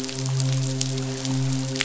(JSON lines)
{"label": "biophony, midshipman", "recorder": "SoundTrap 500"}